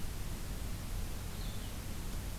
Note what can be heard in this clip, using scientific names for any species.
Vireo solitarius